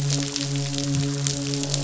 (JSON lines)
{"label": "biophony, midshipman", "recorder": "SoundTrap 500"}